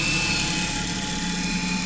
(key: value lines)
label: anthrophony, boat engine
recorder: SoundTrap 500